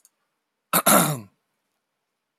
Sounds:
Throat clearing